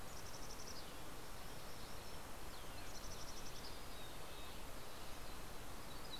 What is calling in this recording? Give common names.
Mountain Chickadee, Red-breasted Nuthatch, Yellow-rumped Warbler